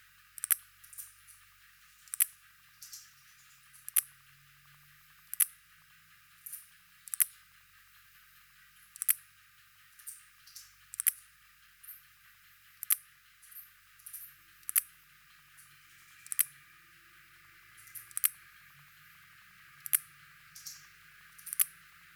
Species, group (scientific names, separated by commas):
Parasteropleurus perezii, Orthoptera